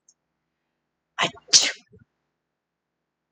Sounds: Sneeze